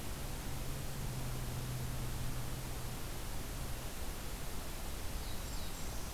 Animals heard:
Black-throated Blue Warbler (Setophaga caerulescens)
Golden-crowned Kinglet (Regulus satrapa)

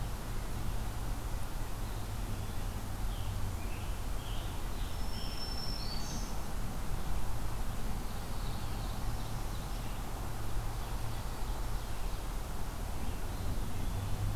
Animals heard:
Ovenbird (Seiurus aurocapilla)
Eastern Wood-Pewee (Contopus virens)
Black-throated Green Warbler (Setophaga virens)
Scarlet Tanager (Piranga olivacea)

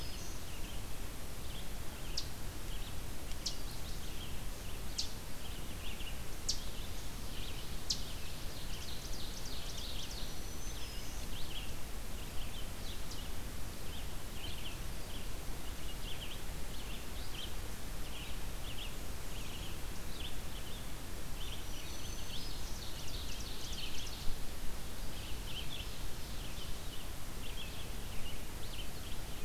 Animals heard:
Red-eyed Vireo (Vireo olivaceus)
Ovenbird (Seiurus aurocapilla)
Black-throated Green Warbler (Setophaga virens)
Eastern Chipmunk (Tamias striatus)

